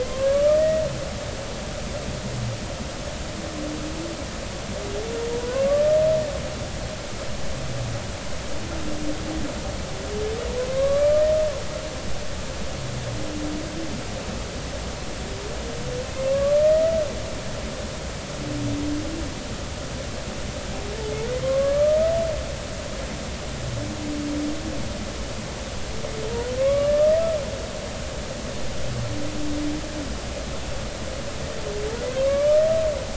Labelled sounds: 0.0	0.8	humpback whale, 0.99 to 2.0 kHz
10.7	11.1	humpback whale, 1.0 to 1.2 kHz
16.2	16.7	humpback whale, 1.0 to 1.2 kHz
21.4	22.0	humpback whale, 1.0 to 1.3 kHz
26.6	26.9	humpback whale, 1.0 to 2.3 kHz
32.3	32.6	humpback whale, 1.0 to 1.3 kHz

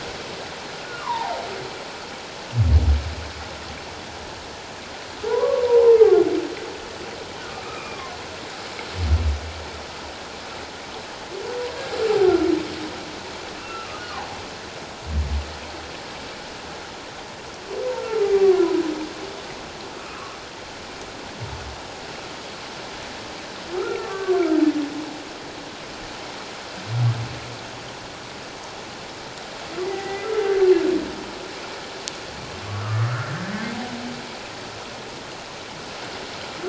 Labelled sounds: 1.0	1.4	humpback whale, 0.78 to 1.3 kHz
5.3	6.2	humpback whale, 0.78 to 1.3 kHz
7.6	8.0	humpback whale, 1.1 to 2.5 kHz
13.6	14.0	humpback whale, 1.2 to 2.8 kHz
18.0	18.6	humpback whale, 1.0 to 1.4 kHz
20.1	20.4	humpback whale, 1.0 to 1.3 kHz
23.8	24.4	humpback whale, 1.0 to 1.6 kHz
29.8	30.3	humpback whale, 0.78 to 2.2 kHz
32.7	33.4	humpback whale, 1.1 to 1.7 kHz

